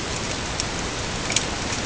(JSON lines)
{"label": "ambient", "recorder": "HydroMoth"}